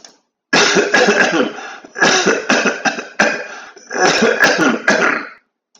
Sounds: Cough